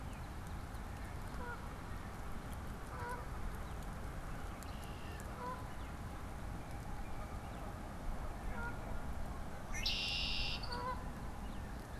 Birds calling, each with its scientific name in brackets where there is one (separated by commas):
Red-winged Blackbird (Agelaius phoeniceus), Canada Goose (Branta canadensis)